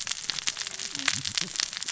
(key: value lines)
label: biophony, cascading saw
recorder: SoundTrap 600 or HydroMoth